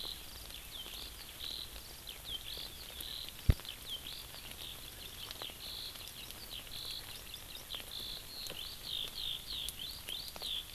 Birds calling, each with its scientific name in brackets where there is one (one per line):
Eurasian Skylark (Alauda arvensis)